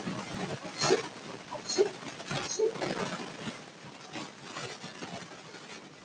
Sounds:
Sniff